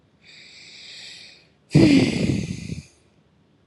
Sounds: Sigh